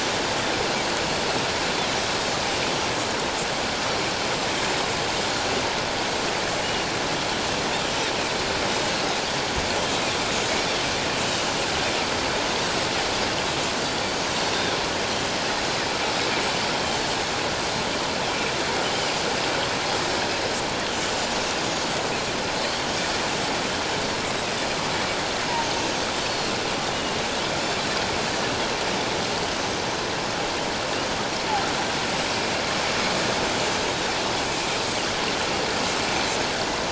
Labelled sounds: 5.1	5.5	Pacific white-sided dolphin, 7.0 to 7.5 kHz
6.6	6.9	Pacific white-sided dolphin, 2.8 to 2.9 kHz
13.8	14.7	Pacific white-sided dolphin, 3.5 to 6.1 kHz
16.7	17.0	Pacific white-sided dolphin, 3.0 to 3.2 kHz
20.9	21.3	Pacific white-sided dolphin, 5.9 to 7.5 kHz
26.2	26.5	Pacific white-sided dolphin, 4.2 to 4.5 kHz
34.8	35.2	Pacific white-sided dolphin, 6.1 to 6.7 kHz

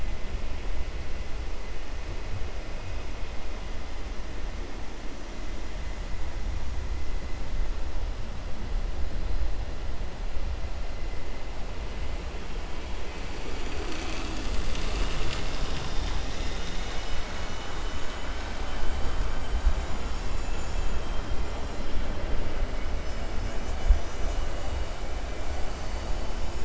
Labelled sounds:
17.7	18.4	vessel noise, 1.5 to 3.8 kHz
20.7	21.3	vessel noise, 2.4 to 3.4 kHz

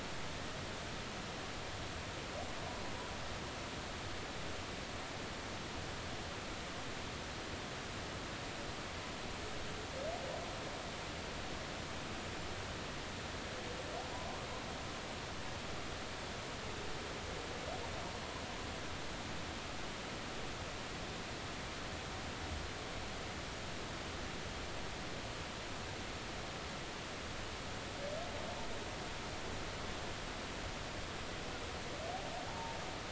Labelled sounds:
14.1	14.5	humpback whale, 0.90 to 1.2 kHz
32.5	32.8	humpback whale, 0.80 to 0.99 kHz

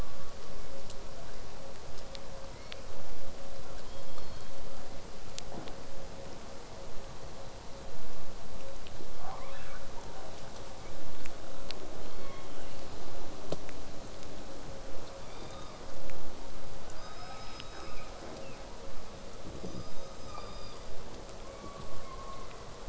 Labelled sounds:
1.1	1.6	killer whale, southern resident, 0.43 to 2.8 kHz
2.5	2.9	killer whale, southern resident, whistle, 1.9 to 5.1 kHz
3.8	4.8	killer whale, southern resident, call S16, 2.6 to 5.6 kHz
12.0	12.9	killer whale, southern resident, call S16, 0.93 to 5.7 kHz
15.2	15.9	killer whale, southern resident, call S16, 1.0 to 5.1 kHz
17.0	18.1	killer whale, southern resident, call S17, 1.1 to 8.0 kHz
17.0	18.6	killer whale, southern resident, 0.19 to 3.0 kHz
19.6	20.9	killer whale, southern resident, call S17, 0.81 to 8.0 kHz
21.4	22.7	killer whale, southern resident, call S17, 0.89 to 4.7 kHz

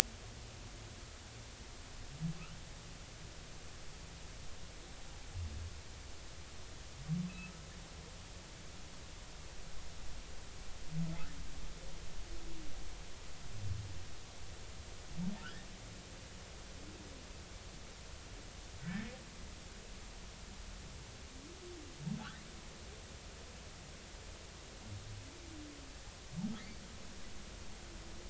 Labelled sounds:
15.4	15.7	humpback whale, 1.3 to 1.9 kHz
18.8	19.2	humpback whale, 1.7 to 2.0 kHz
22.2	22.5	humpback whale, 1.1 to 2.2 kHz

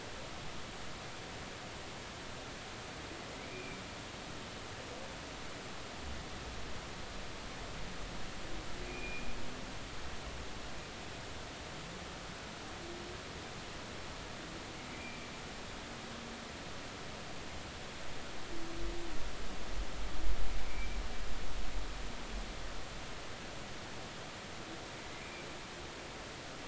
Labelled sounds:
3.5	3.8	humpback whale, 2.3 to 2.5 kHz
8.8	9.3	humpback whale, 2.3 to 2.5 kHz
14.9	15.3	humpback whale, 2.3 to 2.5 kHz
20.7	21.0	humpback whale, 2.2 to 2.4 kHz
25.1	25.4	humpback whale, 2.0 to 2.5 kHz

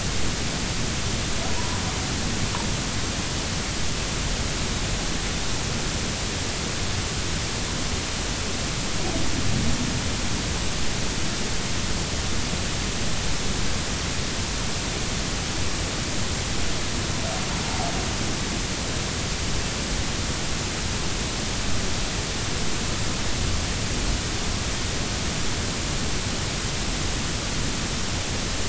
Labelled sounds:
1.6	1.8	humpback whale, 0.90 to 1.1 kHz

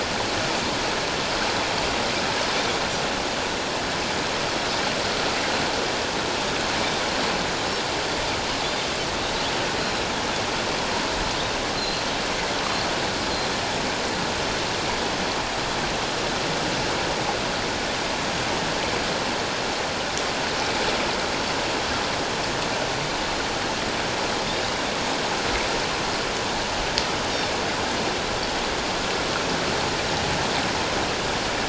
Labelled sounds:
11.8	12.9	Pacific white-sided dolphin, 4.0 to 4.3 kHz
24.4	24.9	Pacific white-sided dolphin, 3.4 to 4.0 kHz

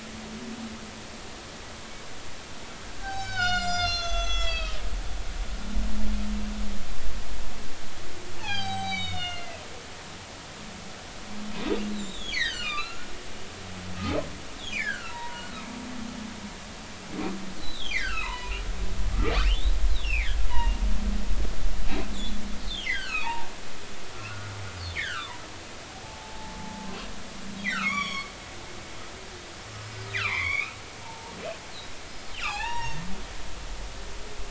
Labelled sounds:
3.0	4.8	humpback whale, 0.80 to 7.9 kHz
8.4	9.6	humpback whale, 0.80 to 7.9 kHz
11.9	13.1	humpback whale, 1.1 to 7.5 kHz
14.7	15.6	humpback whale, 0.86 to 4.4 kHz
17.6	18.6	humpback whale, 0.86 to 5.1 kHz
20.0	20.8	humpback whale, 1.5 to 3.0 kHz
22.1	22.4	humpback whale, 3.4 to 3.9 kHz
22.8	23.5	humpback whale, 0.80 to 4.9 kHz
24.1	24.5	humpback whale, 1.2 to 1.5 kHz
24.9	25.4	humpback whale, 0.90 to 3.8 kHz
26.0	26.9	humpback whale, 0.80 to 0.93 kHz
27.7	28.3	humpback whale, 1.0 to 5.8 kHz
30.1	31.3	humpback whale, 0.80 to 4.0 kHz
32.3	33.0	humpback whale, 0.80 to 5.7 kHz

